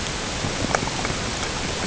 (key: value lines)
label: ambient
recorder: HydroMoth